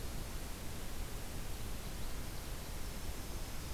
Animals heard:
forest ambience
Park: Katahdin Woods and Waters National Monument